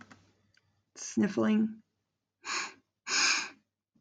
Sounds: Sniff